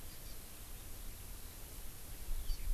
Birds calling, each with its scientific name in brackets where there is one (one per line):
Hawaii Amakihi (Chlorodrepanis virens)